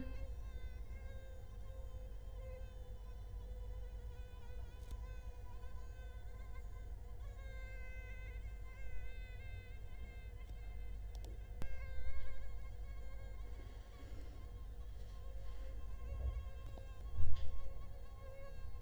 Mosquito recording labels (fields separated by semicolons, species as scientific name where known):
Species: Culex quinquefasciatus; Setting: cup